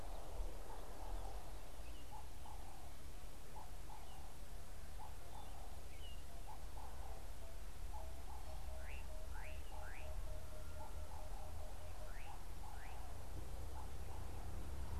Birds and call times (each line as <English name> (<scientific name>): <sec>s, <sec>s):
Slate-colored Boubou (Laniarius funebris): 9.5s
Emerald-spotted Wood-Dove (Turtur chalcospilos): 10.1s